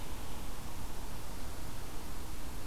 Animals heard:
forest ambience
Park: Marsh-Billings-Rockefeller National Historical Park